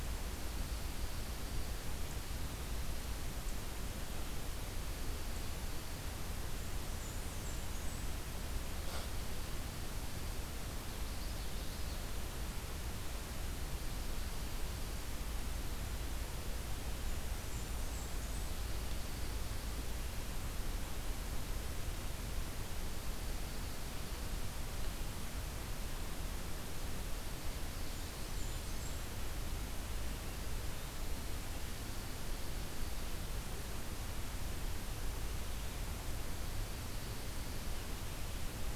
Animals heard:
Dark-eyed Junco (Junco hyemalis), Common Yellowthroat (Geothlypis trichas), Blackburnian Warbler (Setophaga fusca)

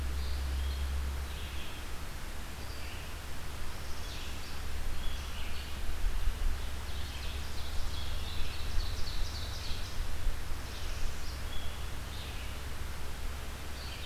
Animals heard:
Red-eyed Vireo (Vireo olivaceus), Ovenbird (Seiurus aurocapilla), Northern Parula (Setophaga americana)

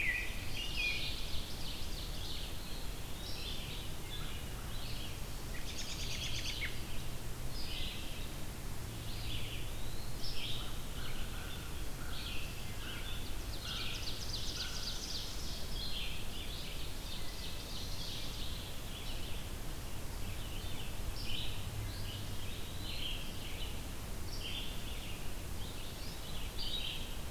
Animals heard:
Ovenbird (Seiurus aurocapilla), Eastern Wood-Pewee (Contopus virens), American Robin (Turdus migratorius), Red-eyed Vireo (Vireo olivaceus), American Crow (Corvus brachyrhynchos)

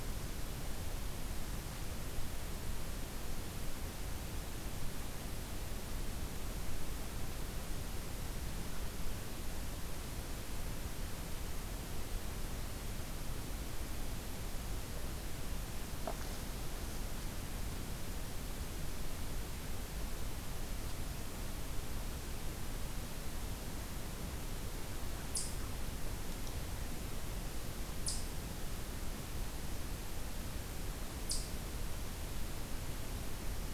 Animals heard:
Eastern Chipmunk (Tamias striatus)

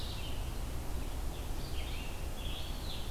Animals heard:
Red-eyed Vireo (Vireo olivaceus), Eastern Wood-Pewee (Contopus virens)

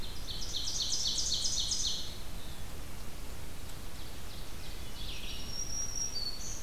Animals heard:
Ovenbird (Seiurus aurocapilla), Red-eyed Vireo (Vireo olivaceus), Black-throated Green Warbler (Setophaga virens)

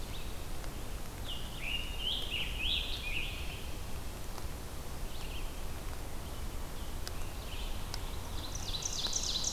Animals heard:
Ovenbird (Seiurus aurocapilla), Red-eyed Vireo (Vireo olivaceus), Scarlet Tanager (Piranga olivacea)

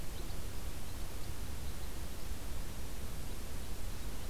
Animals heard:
Red Crossbill (Loxia curvirostra)

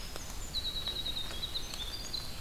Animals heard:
Red-eyed Vireo (Vireo olivaceus), Winter Wren (Troglodytes hiemalis)

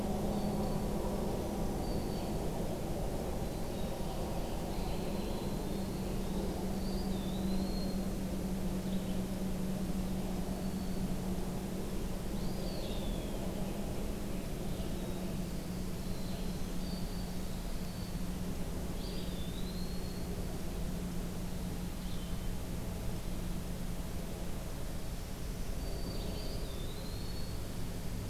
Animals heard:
Eastern Wood-Pewee (Contopus virens), Winter Wren (Troglodytes hiemalis), Red-eyed Vireo (Vireo olivaceus), Black-throated Green Warbler (Setophaga virens)

